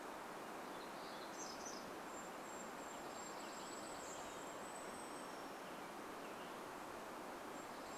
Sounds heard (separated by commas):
Dark-eyed Junco song, Varied Thrush song, warbler song, American Robin song, Western Tanager song, Golden-crowned Kinglet song